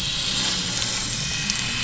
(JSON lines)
{"label": "anthrophony, boat engine", "recorder": "SoundTrap 500"}